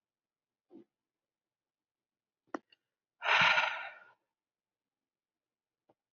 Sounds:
Sigh